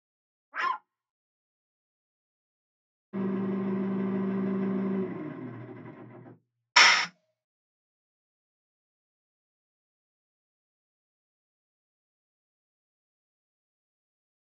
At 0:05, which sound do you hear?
engine